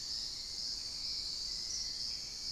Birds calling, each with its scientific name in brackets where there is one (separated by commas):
unidentified bird, Hauxwell's Thrush (Turdus hauxwelli)